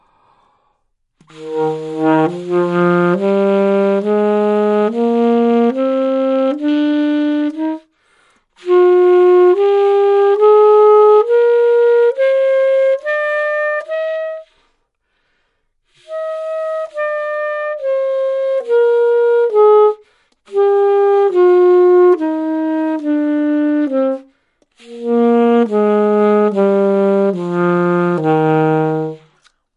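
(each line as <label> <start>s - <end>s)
A person inhales. 0.0s - 0.9s
A saxophone plays ascending notes. 1.1s - 14.6s
A person inhales shortly. 8.0s - 8.5s
A person inhales. 15.0s - 15.8s
A saxophone plays a descending series of notes. 16.0s - 29.5s
A person inhales shortly. 20.0s - 20.5s
A person inhales shortly. 24.3s - 24.7s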